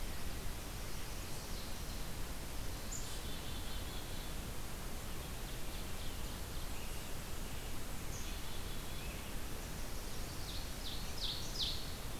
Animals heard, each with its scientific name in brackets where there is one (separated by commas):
Chestnut-sided Warbler (Setophaga pensylvanica), Ovenbird (Seiurus aurocapilla), Scarlet Tanager (Piranga olivacea), Black-capped Chickadee (Poecile atricapillus)